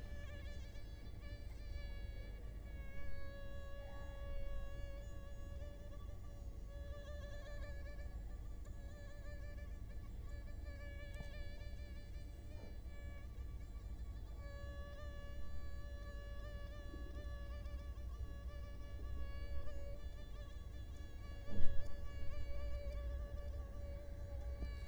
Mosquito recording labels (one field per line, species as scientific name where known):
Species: Culex quinquefasciatus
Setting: cup